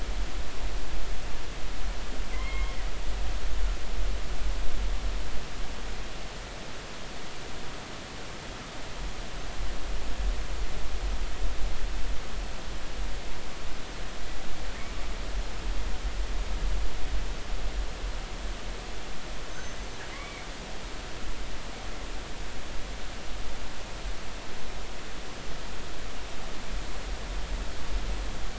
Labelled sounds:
2.3	2.8	killer whale, northern resident, G clan, 0.99 to 2.3 kHz
19.5	20.5	killer whale, northern resident, G clan, 2.0 to 6.3 kHz

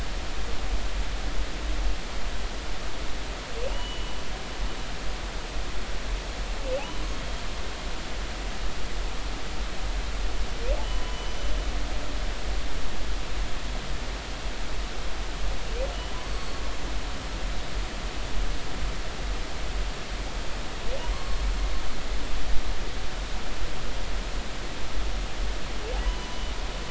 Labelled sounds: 3.8	4.0	humpback whale, 7.8 to 7.9 kHz
4.7	5.1	humpback whale, 2.8 to 3.0 kHz
10.9	11.2	humpback whale, 0.96 to 1.1 kHz
16.2	16.6	humpback whale, 4.4 to 4.6 kHz
21.1	21.4	humpback whale, 0.99 to 1.2 kHz
26.0	26.4	humpback whale, 0.93 to 1.1 kHz

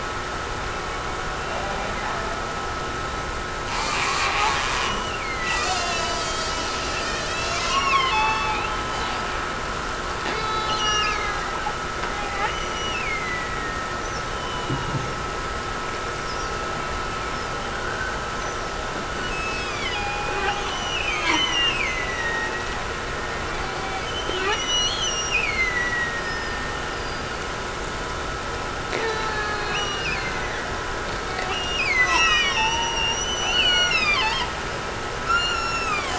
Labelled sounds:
4.8	5.7	killer whale, Bigg's (transient), Gulf of Alaska transient, 1.8 to 3.1 kHz
10.7	11.7	killer whale, Bigg's (transient), Gulf of Alaska transient, 1.7 to 2.9 kHz
12.4	14.1	killer whale, Bigg's (transient), Gulf of Alaska transient, 1.7 to 6.1 kHz
19.3	22.9	killer whale, Bigg's (transient), Gulf of Alaska transient, 1.6 to 5.3 kHz
24.0	27.1	killer whale, Bigg's (transient), Gulf of Alaska transient, 1.7 to 6.1 kHz
29.8	31.1	killer whale, Bigg's (transient), Gulf of Alaska transient, 1.7 to 3.0 kHz
31.5	32.9	killer whale, Bigg's (transient), Gulf of Alaska transient, 0.59 to 5.8 kHz

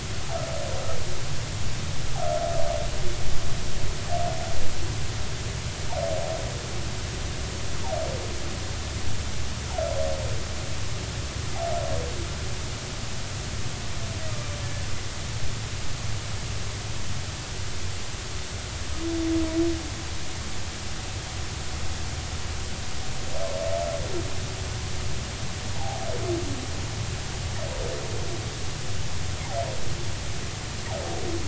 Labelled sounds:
14.3	14.6	humpback whale, 1.1 to 1.3 kHz
25.7	26.0	humpback whale, 0.80 to 0.99 kHz

